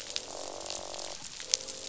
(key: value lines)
label: biophony, croak
recorder: SoundTrap 500